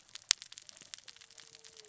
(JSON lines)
{"label": "biophony, cascading saw", "recorder": "SoundTrap 600 or HydroMoth"}